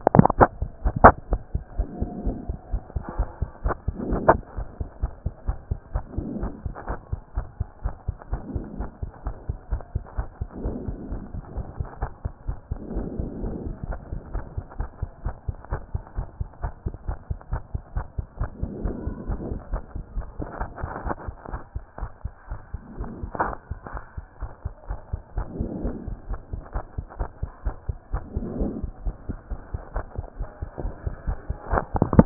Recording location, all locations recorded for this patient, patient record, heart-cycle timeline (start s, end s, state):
pulmonary valve (PV)
aortic valve (AV)+pulmonary valve (PV)+tricuspid valve (TV)+mitral valve (MV)
#Age: Child
#Sex: Male
#Height: 131.0 cm
#Weight: 26.5 kg
#Pregnancy status: False
#Murmur: Absent
#Murmur locations: nan
#Most audible location: nan
#Systolic murmur timing: nan
#Systolic murmur shape: nan
#Systolic murmur grading: nan
#Systolic murmur pitch: nan
#Systolic murmur quality: nan
#Diastolic murmur timing: nan
#Diastolic murmur shape: nan
#Diastolic murmur grading: nan
#Diastolic murmur pitch: nan
#Diastolic murmur quality: nan
#Outcome: Normal
#Campaign: 2014 screening campaign
0.00	0.14	systole
0.14	0.20	S2
0.20	0.38	diastole
0.38	0.48	S1
0.48	0.60	systole
0.60	0.66	S2
0.66	0.84	diastole
0.84	0.94	S1
0.94	1.02	systole
1.02	1.14	S2
1.14	1.30	diastole
1.30	1.40	S1
1.40	1.54	systole
1.54	1.62	S2
1.62	1.78	diastole
1.78	1.88	S1
1.88	2.00	systole
2.00	2.10	S2
2.10	2.24	diastole
2.24	2.36	S1
2.36	2.48	systole
2.48	2.58	S2
2.58	2.72	diastole
2.72	2.82	S1
2.82	2.94	systole
2.94	3.04	S2
3.04	3.18	diastole
3.18	3.28	S1
3.28	3.40	systole
3.40	3.50	S2
3.50	3.64	diastole
3.64	3.76	S1
3.76	3.86	systole
3.86	3.96	S2
3.96	4.14	diastole
4.14	4.20	S1
4.20	4.28	systole
4.28	4.40	S2
4.40	4.56	diastole
4.56	4.66	S1
4.66	4.78	systole
4.78	4.88	S2
4.88	5.02	diastole
5.02	5.12	S1
5.12	5.24	systole
5.24	5.34	S2
5.34	5.48	diastole
5.48	5.58	S1
5.58	5.70	systole
5.70	5.78	S2
5.78	5.94	diastole
5.94	6.04	S1
6.04	6.16	systole
6.16	6.26	S2
6.26	6.40	diastole
6.40	6.52	S1
6.52	6.64	systole
6.64	6.74	S2
6.74	6.88	diastole
6.88	6.98	S1
6.98	7.10	systole
7.10	7.20	S2
7.20	7.36	diastole
7.36	7.46	S1
7.46	7.58	systole
7.58	7.68	S2
7.68	7.84	diastole
7.84	7.94	S1
7.94	8.06	systole
8.06	8.16	S2
8.16	8.30	diastole
8.30	8.42	S1
8.42	8.54	systole
8.54	8.62	S2
8.62	8.78	diastole
8.78	8.88	S1
8.88	9.02	systole
9.02	9.10	S2
9.10	9.24	diastole
9.24	9.36	S1
9.36	9.48	systole
9.48	9.56	S2
9.56	9.70	diastole
9.70	9.82	S1
9.82	9.94	systole
9.94	10.02	S2
10.02	10.18	diastole
10.18	10.28	S1
10.28	10.40	systole
10.40	10.48	S2
10.48	10.62	diastole
10.62	10.76	S1
10.76	10.86	systole
10.86	10.96	S2
10.96	11.10	diastole
11.10	11.22	S1
11.22	11.34	systole
11.34	11.42	S2
11.42	11.56	diastole
11.56	11.66	S1
11.66	11.78	systole
11.78	11.88	S2
11.88	12.02	diastole
12.02	12.10	S1
12.10	12.24	systole
12.24	12.32	S2
12.32	12.46	diastole
12.46	12.58	S1
12.58	12.70	systole
12.70	12.78	S2
12.78	12.94	diastole
12.94	13.06	S1
13.06	13.18	systole
13.18	13.28	S2
13.28	13.42	diastole
13.42	13.54	S1
13.54	13.64	systole
13.64	13.74	S2
13.74	13.88	diastole
13.88	13.98	S1
13.98	14.10	systole
14.10	14.20	S2
14.20	14.34	diastole
14.34	14.44	S1
14.44	14.56	systole
14.56	14.64	S2
14.64	14.78	diastole
14.78	14.88	S1
14.88	15.00	systole
15.00	15.10	S2
15.10	15.24	diastole
15.24	15.34	S1
15.34	15.46	systole
15.46	15.56	S2
15.56	15.70	diastole
15.70	15.82	S1
15.82	15.92	systole
15.92	16.02	S2
16.02	16.16	diastole
16.16	16.26	S1
16.26	16.38	systole
16.38	16.48	S2
16.48	16.62	diastole
16.62	16.72	S1
16.72	16.84	systole
16.84	16.94	S2
16.94	17.08	diastole
17.08	17.18	S1
17.18	17.28	systole
17.28	17.38	S2
17.38	17.52	diastole
17.52	17.62	S1
17.62	17.72	systole
17.72	17.82	S2
17.82	17.94	diastole
17.94	18.06	S1
18.06	18.16	systole
18.16	18.26	S2
18.26	18.40	diastole
18.40	18.50	S1
18.50	18.60	systole
18.60	18.70	S2
18.70	18.82	diastole
18.82	18.94	S1
18.94	19.04	systole
19.04	19.14	S2
19.14	19.28	diastole
19.28	19.40	S1
19.40	19.50	systole
19.50	19.58	S2
19.58	19.72	diastole
19.72	19.82	S1
19.82	19.94	systole
19.94	20.04	S2
20.04	20.16	diastole
20.16	20.26	S1
20.26	20.38	systole
20.38	20.48	S2
20.48	20.60	diastole
20.60	20.70	S1
20.70	20.82	systole
20.82	20.90	S2
20.90	21.04	diastole
21.04	21.16	S1
21.16	21.26	systole
21.26	21.36	S2
21.36	21.52	diastole
21.52	21.62	S1
21.62	21.74	systole
21.74	21.84	S2
21.84	22.00	diastole
22.00	22.10	S1
22.10	22.24	systole
22.24	22.32	S2
22.32	22.50	diastole
22.50	22.60	S1
22.60	22.72	systole
22.72	22.82	S2
22.82	22.98	diastole
22.98	23.10	S1
23.10	23.22	systole
23.22	23.30	S2
23.30	23.42	diastole
23.42	23.56	S1
23.56	23.70	systole
23.70	23.78	S2
23.78	23.94	diastole
23.94	24.02	S1
24.02	24.16	systole
24.16	24.26	S2
24.26	24.42	diastole
24.42	24.50	S1
24.50	24.64	systole
24.64	24.72	S2
24.72	24.88	diastole
24.88	24.98	S1
24.98	25.12	systole
25.12	25.20	S2
25.20	25.36	diastole
25.36	25.46	S1
25.46	25.58	systole
25.58	25.68	S2
25.68	25.82	diastole
25.82	25.94	S1
25.94	26.06	systole
26.06	26.16	S2
26.16	26.30	diastole
26.30	26.40	S1
26.40	26.52	systole
26.52	26.62	S2
26.62	26.74	diastole
26.74	26.84	S1
26.84	26.96	systole
26.96	27.06	S2
27.06	27.18	diastole
27.18	27.28	S1
27.28	27.42	systole
27.42	27.50	S2
27.50	27.64	diastole
27.64	27.76	S1
27.76	27.88	systole
27.88	27.96	S2
27.96	28.12	diastole
28.12	28.22	S1
28.22	28.34	systole
28.34	28.46	S2
28.46	28.58	diastole
28.58	28.72	S1
28.72	28.82	systole
28.82	28.90	S2
28.90	29.04	diastole
29.04	29.14	S1
29.14	29.28	systole
29.28	29.38	S2
29.38	29.52	diastole
29.52	29.60	S1
29.60	29.72	systole
29.72	29.82	S2
29.82	29.94	diastole
29.94	30.04	S1
30.04	30.16	systole
30.16	30.26	S2
30.26	30.40	diastole
30.40	30.48	S1
30.48	30.60	systole
30.60	30.70	S2
30.70	30.84	diastole
30.84	30.94	S1
30.94	31.04	systole
31.04	31.14	S2
31.14	31.28	diastole
31.28	31.38	S1
31.38	31.48	systole
31.48	31.56	S2
31.56	31.72	diastole
31.72	31.82	S1
31.82	31.96	systole
31.96	32.06	S2
32.06	32.16	diastole
32.16	32.26	S1